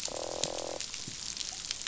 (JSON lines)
{"label": "biophony, croak", "recorder": "SoundTrap 500"}